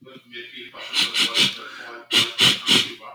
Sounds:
Sniff